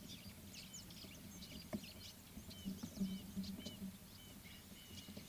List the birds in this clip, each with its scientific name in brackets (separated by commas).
Red-fronted Barbet (Tricholaema diademata)